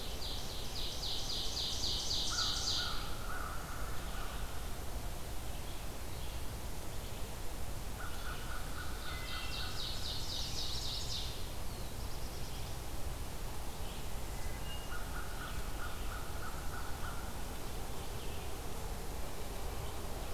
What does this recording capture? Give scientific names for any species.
Seiurus aurocapilla, Vireo olivaceus, Corvus brachyrhynchos, Hylocichla mustelina, Setophaga caerulescens